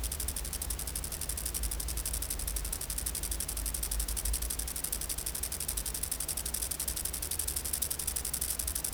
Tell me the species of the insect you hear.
Chorthippus acroleucus